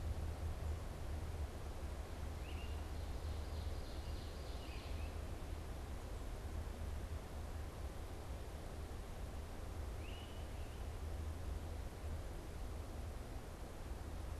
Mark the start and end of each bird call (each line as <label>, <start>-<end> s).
Great Crested Flycatcher (Myiarchus crinitus), 2.4-5.3 s
Ovenbird (Seiurus aurocapilla), 3.1-5.1 s
Great Crested Flycatcher (Myiarchus crinitus), 10.0-10.7 s